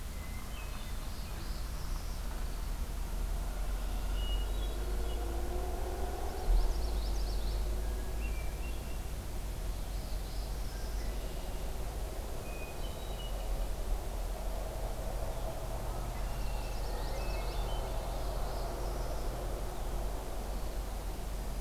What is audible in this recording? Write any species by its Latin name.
Catharus guttatus, Setophaga americana, Agelaius phoeniceus, Geothlypis trichas